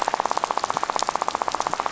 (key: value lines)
label: biophony, rattle
recorder: SoundTrap 500